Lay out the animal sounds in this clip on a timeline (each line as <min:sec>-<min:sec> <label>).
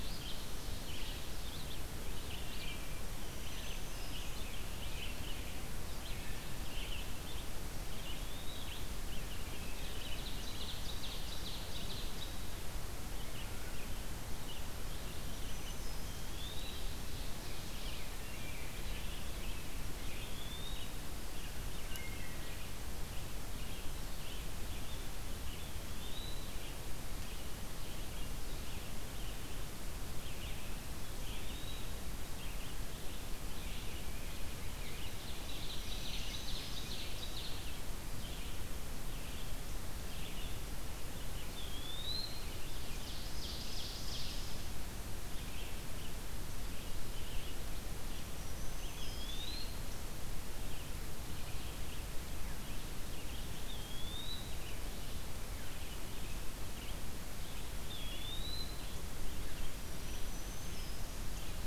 0:00.0-0:22.0 Red-eyed Vireo (Vireo olivaceus)
0:02.8-0:04.4 Black-throated Green Warbler (Setophaga virens)
0:07.7-0:08.8 Eastern Wood-Pewee (Contopus virens)
0:09.7-0:12.4 Ovenbird (Seiurus aurocapilla)
0:15.0-0:16.3 Black-throated Green Warbler (Setophaga virens)
0:16.1-0:16.9 Eastern Wood-Pewee (Contopus virens)
0:18.1-0:18.9 Wood Thrush (Hylocichla mustelina)
0:20.0-0:21.0 Eastern Wood-Pewee (Contopus virens)
0:21.8-0:22.6 Wood Thrush (Hylocichla mustelina)
0:22.4-1:01.7 Red-eyed Vireo (Vireo olivaceus)
0:25.5-0:26.5 Eastern Wood-Pewee (Contopus virens)
0:31.2-0:32.0 Eastern Wood-Pewee (Contopus virens)
0:34.9-0:38.0 Ovenbird (Seiurus aurocapilla)
0:35.7-0:37.2 Black-throated Green Warbler (Setophaga virens)
0:41.1-0:42.5 Eastern Wood-Pewee (Contopus virens)
0:42.8-0:44.5 Ovenbird (Seiurus aurocapilla)
0:48.2-0:49.7 Black-throated Green Warbler (Setophaga virens)
0:48.7-0:49.8 Eastern Wood-Pewee (Contopus virens)
0:53.6-0:54.7 Eastern Wood-Pewee (Contopus virens)
0:57.7-0:59.0 Eastern Wood-Pewee (Contopus virens)
0:59.6-1:01.3 Black-throated Green Warbler (Setophaga virens)